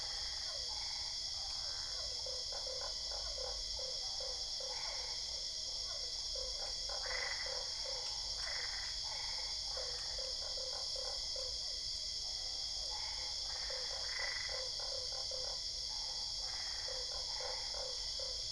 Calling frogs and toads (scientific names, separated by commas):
Boana albopunctata, Physalaemus cuvieri, Boana lundii